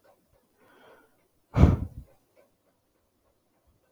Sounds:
Sigh